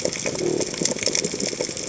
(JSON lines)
{"label": "biophony", "recorder": "HydroMoth"}